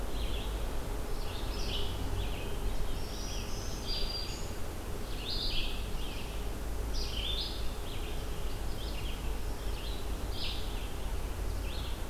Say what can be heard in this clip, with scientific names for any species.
Vireo olivaceus, Setophaga virens